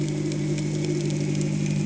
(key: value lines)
label: anthrophony, boat engine
recorder: HydroMoth